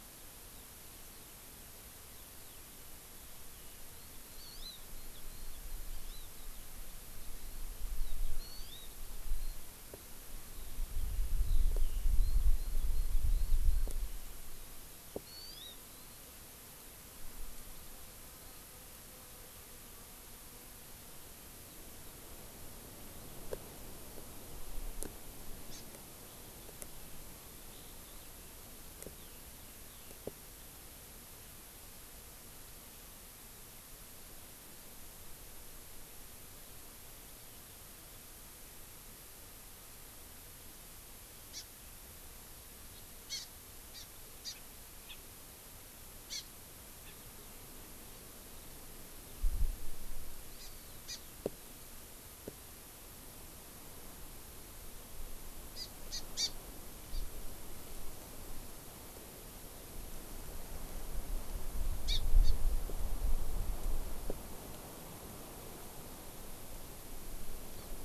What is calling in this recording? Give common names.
Eurasian Skylark, Hawaii Amakihi